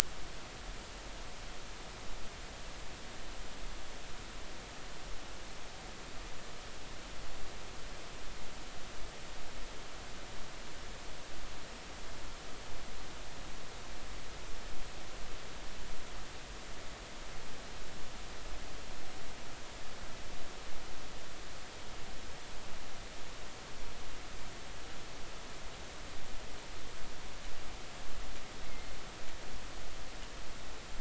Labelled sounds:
28.7	29.0	killer whale, 2.0 to 2.2 kHz

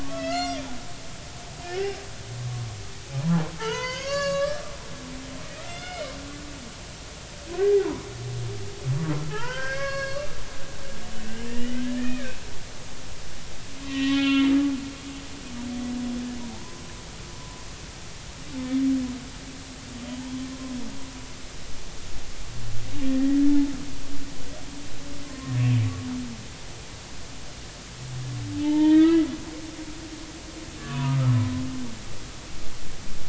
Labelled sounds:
0.0	0.7	humpback whale, 1.1 to 5.8 kHz
1.6	2.0	humpback whale, 1.4 to 2.0 kHz
3.6	4.6	humpback whale, 0.83 to 7.5 kHz
5.7	6.1	humpback whale, 1.3 to 5.2 kHz
6.5	7.9	humpback whale, 0.80 to 2.2 kHz
9.3	10.3	humpback whale, 0.80 to 5.0 kHz
11.5	12.4	humpback whale, 1.5 to 3.0 kHz
13.8	14.5	humpback whale, 0.93 to 4.2 kHz
23.0	23.7	humpback whale, 0.83 to 2.0 kHz
25.3	25.6	humpback whale, 0.99 to 1.1 kHz
28.6	29.2	humpback whale, 0.83 to 2.6 kHz
30.8	31.4	humpback whale, 0.90 to 1.5 kHz

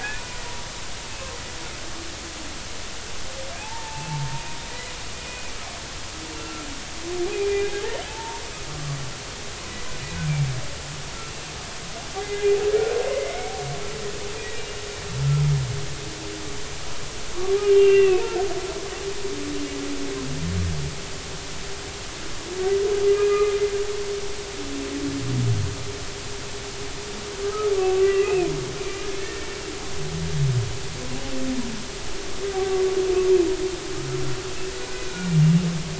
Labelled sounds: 3.6	4.9	humpback whale, 0.80 to 2.7 kHz
6.3	6.7	humpback whale, 1.3 to 2.8 kHz
7.3	7.8	humpback whale, 2.3 to 3.7 kHz
8.1	8.4	humpback whale, 0.83 to 0.99 kHz
12.2	12.6	humpback whale, 2.0 to 2.1 kHz
13.0	13.3	humpback whale, 2.0 to 2.2 kHz
14.4	14.8	humpback whale, 1.9 to 2.9 kHz
17.6	18.3	humpback whale, 2.5 to 2.9 kHz
23.1	23.6	humpback whale, 1.1 to 2.6 kHz
27.4	28.5	humpback whale, 1.1 to 2.8 kHz
28.8	29.5	humpback whale, 1.7 to 2.5 kHz
32.5	32.8	humpback whale, 1.1 to 1.2 kHz
35.1	35.4	humpback whale, 1.4 to 1.5 kHz

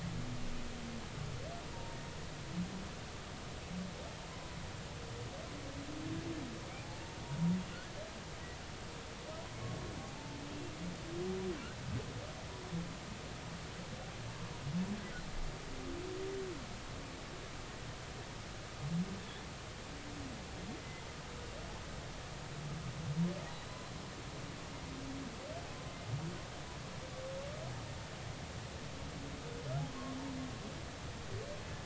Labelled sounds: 1.7	2.0	humpback whale, 0.90 to 0.99 kHz
4.3	4.6	humpback whale, 0.96 to 1.1 kHz
6.7	7.0	humpback whale, 0.80 to 0.93 kHz
10.0	10.4	humpback whale, 0.80 to 0.93 kHz
23.5	24.0	humpback whale, 3.8 to 4.1 kHz
29.9	30.2	humpback whale, 0.99 to 1.2 kHz

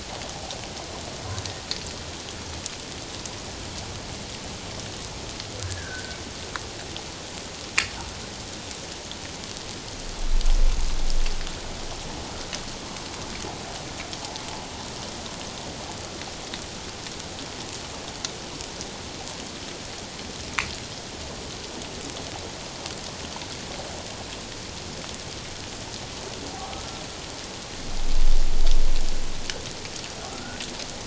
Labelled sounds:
5.6	6.2	humpback whale, 1.4 to 1.8 kHz
26.5	26.8	humpback whale, 0.78 to 0.88 kHz
30.3	30.6	humpback whale, 1.2 to 1.6 kHz

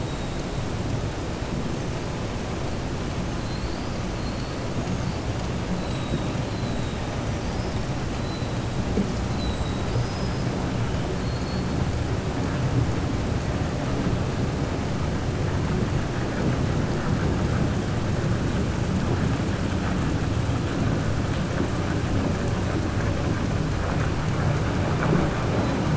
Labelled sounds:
6.5	7.0	killer whale, southern resident, 3.7 to 4.2 kHz
9.2	10.4	killer whale, southern resident, 3.8 to 6.1 kHz

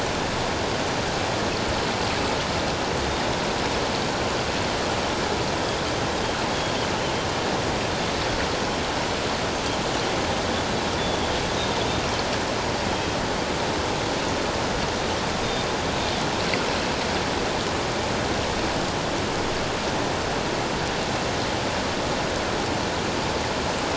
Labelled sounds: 11.0	11.3	Pacific white-sided dolphin, 3.2 to 3.5 kHz

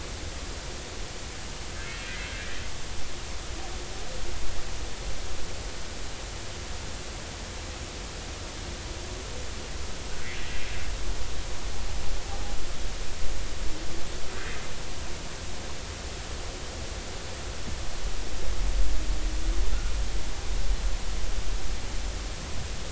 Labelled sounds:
3.1	3.3	humpback whale, 1.9 to 2.2 kHz

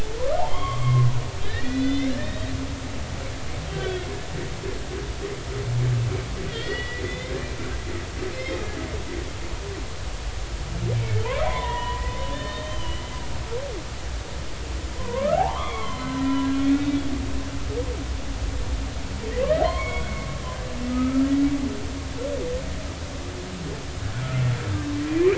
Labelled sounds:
0.4	1.1	humpback whale, 0.80 to 3.5 kHz
1.5	2.5	humpback whale, 1.5 to 4.1 kHz
3.7	4.0	humpback whale, 1.4 to 3.5 kHz
6.5	7.3	humpback whale, 1.8 to 4.4 kHz
10.9	13.0	humpback whale, 0.86 to 4.3 kHz
15.0	17.0	humpback whale, 0.80 to 3.6 kHz
19.6	20.1	humpback whale, 0.90 to 3.4 kHz
20.9	21.3	humpback whale, 1.2 to 1.4 kHz
24.2	25.3	humpback whale, 1.2 to 2.5 kHz

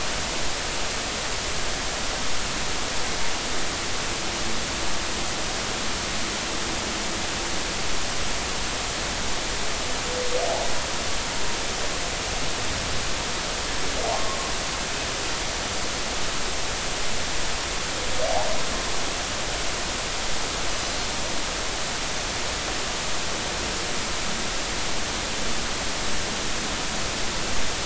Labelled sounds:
14.1	14.4	humpback whale, 1.0 to 1.1 kHz

